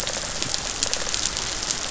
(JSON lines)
{"label": "biophony, rattle response", "recorder": "SoundTrap 500"}